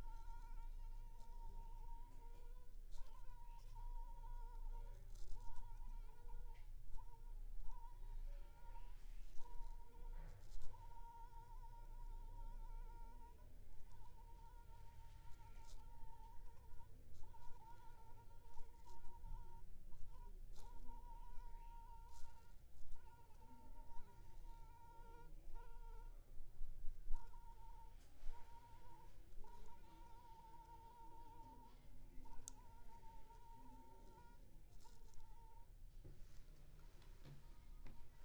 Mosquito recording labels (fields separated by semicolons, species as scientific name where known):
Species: Anopheles funestus s.s.; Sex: female; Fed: unfed; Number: one; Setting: cup